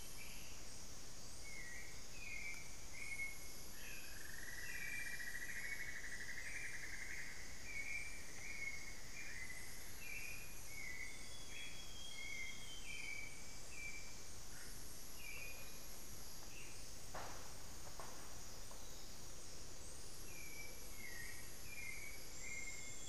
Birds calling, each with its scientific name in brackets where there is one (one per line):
Hauxwell's Thrush (Turdus hauxwelli)
unidentified bird
Amazonian Grosbeak (Cyanoloxia rothschildii)
Amazonian Motmot (Momotus momota)
Cinnamon-throated Woodcreeper (Dendrexetastes rufigula)